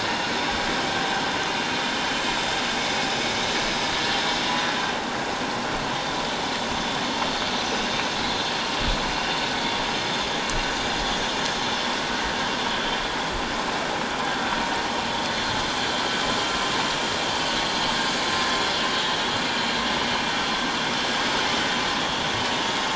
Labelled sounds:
18.9	19.2	vessel noise, 3.7 to 3.8 kHz

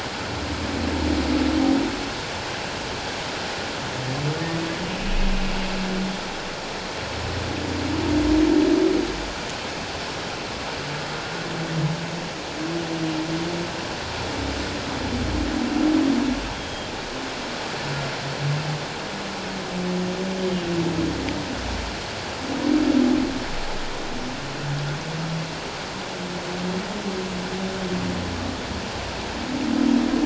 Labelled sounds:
16.5	16.9	humpback whale, 3.2 to 3.3 kHz

